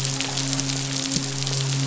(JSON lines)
{"label": "biophony, midshipman", "recorder": "SoundTrap 500"}